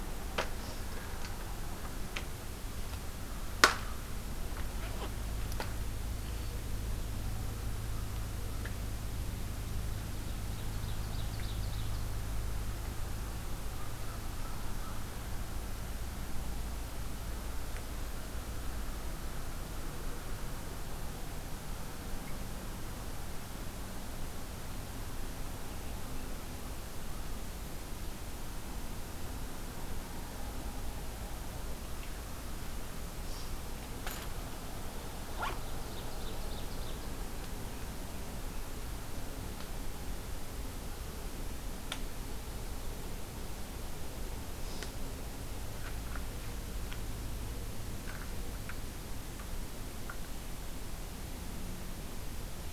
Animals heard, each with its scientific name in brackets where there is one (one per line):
American Crow (Corvus brachyrhynchos)
Ovenbird (Seiurus aurocapilla)